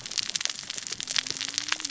{"label": "biophony, cascading saw", "recorder": "SoundTrap 600 or HydroMoth"}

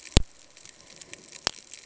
{"label": "ambient", "recorder": "HydroMoth"}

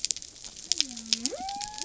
{"label": "biophony", "recorder": "SoundTrap 300"}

